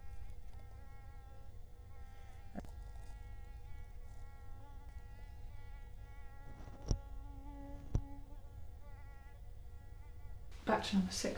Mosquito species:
Culex quinquefasciatus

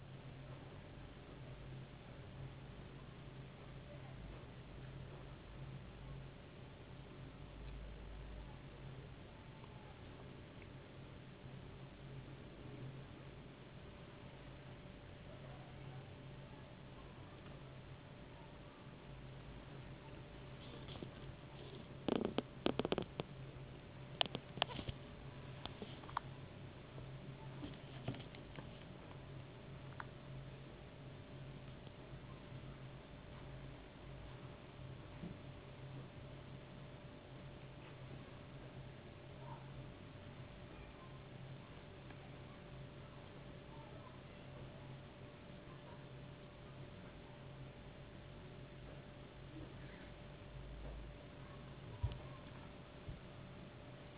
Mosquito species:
no mosquito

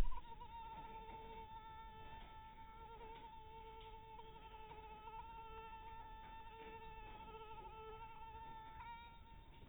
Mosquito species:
mosquito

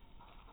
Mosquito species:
mosquito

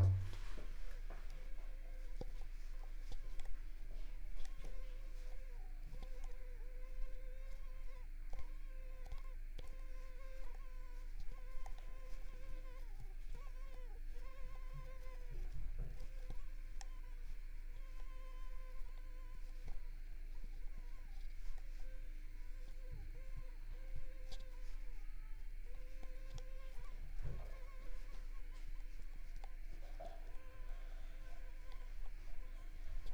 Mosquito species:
Mansonia uniformis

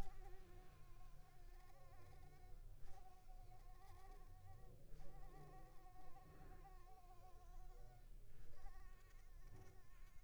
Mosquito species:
Anopheles coustani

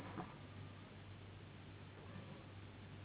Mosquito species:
Anopheles gambiae s.s.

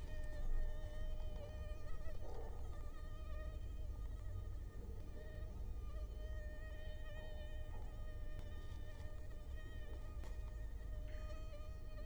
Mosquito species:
Culex quinquefasciatus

